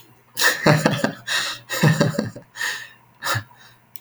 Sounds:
Laughter